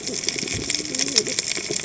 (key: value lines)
label: biophony, cascading saw
recorder: HydroMoth